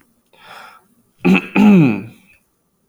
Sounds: Throat clearing